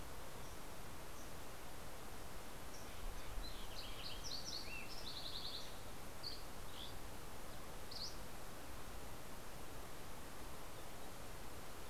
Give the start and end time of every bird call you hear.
2.9s-6.0s: Lincoln's Sparrow (Melospiza lincolnii)
5.9s-8.6s: Dusky Flycatcher (Empidonax oberholseri)

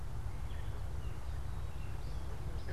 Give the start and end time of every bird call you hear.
0.0s-2.7s: Gray Catbird (Dumetella carolinensis)

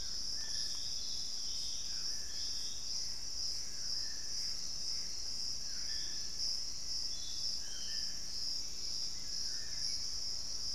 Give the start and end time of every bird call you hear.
0.0s-10.7s: Dusky-throated Antshrike (Thamnomanes ardesiacus)
2.7s-5.6s: Gray Antbird (Cercomacra cinerascens)
5.6s-7.7s: Black-faced Antthrush (Formicarius analis)
8.5s-10.4s: Hauxwell's Thrush (Turdus hauxwelli)

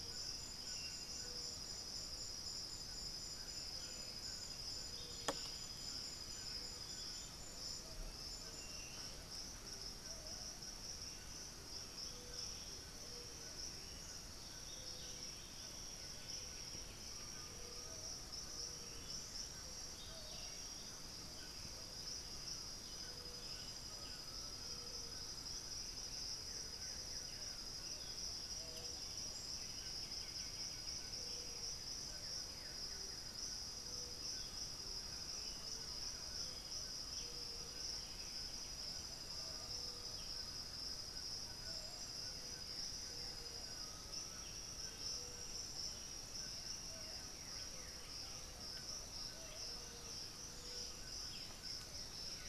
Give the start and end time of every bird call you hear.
0.0s-9.2s: Striped Cuckoo (Tapera naevia)
0.0s-52.5s: White-throated Toucan (Ramphastos tucanus)
4.7s-21.0s: Buff-throated Saltator (Saltator maximus)
6.6s-7.4s: unidentified bird
15.4s-17.9s: White-winged Becard (Pachyramphus polychopterus)
17.1s-19.2s: Undulated Tinamou (Crypturellus undulatus)
19.4s-23.5s: Green-backed Trogon (Trogon viridis)
21.1s-52.5s: Black-billed Thrush (Turdus ignobilis)
23.8s-25.8s: Undulated Tinamou (Crypturellus undulatus)
26.2s-33.5s: Blue-gray Saltator (Saltator coerulescens)
29.5s-31.3s: White-winged Becard (Pachyramphus polychopterus)
33.8s-38.6s: Green-backed Trogon (Trogon viridis)
34.8s-38.5s: Thrush-like Wren (Campylorhynchus turdinus)
37.5s-39.3s: White-winged Becard (Pachyramphus polychopterus)
39.2s-45.5s: Undulated Tinamou (Crypturellus undulatus)
41.7s-52.5s: Blue-gray Saltator (Saltator coerulescens)

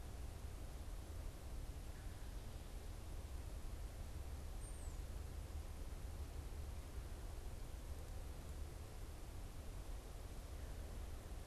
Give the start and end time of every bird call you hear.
4.3s-5.1s: unidentified bird

